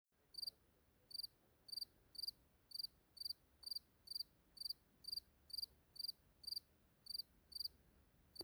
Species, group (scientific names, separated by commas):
Gryllus campestris, Orthoptera